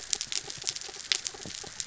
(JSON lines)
{"label": "anthrophony, mechanical", "recorder": "SoundTrap 300"}